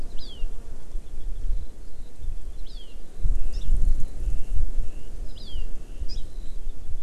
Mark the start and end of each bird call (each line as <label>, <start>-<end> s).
Hawaii Amakihi (Chlorodrepanis virens), 0.1-0.4 s
Eurasian Skylark (Alauda arvensis), 1.5-7.0 s
Hawaii Amakihi (Chlorodrepanis virens), 2.6-2.9 s
Hawaii Amakihi (Chlorodrepanis virens), 3.5-3.6 s
Hawaii Amakihi (Chlorodrepanis virens), 5.3-5.6 s
Hawaii Amakihi (Chlorodrepanis virens), 6.0-6.2 s